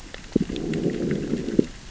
{"label": "biophony, growl", "recorder": "SoundTrap 600 or HydroMoth"}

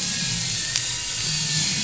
{"label": "anthrophony, boat engine", "recorder": "SoundTrap 500"}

